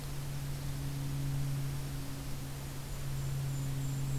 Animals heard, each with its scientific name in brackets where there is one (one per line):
Golden-crowned Kinglet (Regulus satrapa)